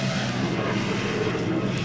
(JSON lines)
{"label": "anthrophony, boat engine", "recorder": "SoundTrap 500"}